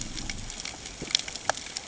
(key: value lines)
label: ambient
recorder: HydroMoth